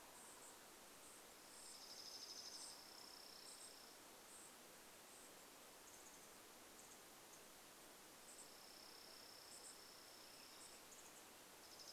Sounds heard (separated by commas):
unidentified bird chip note, Chipping Sparrow song, unidentified sound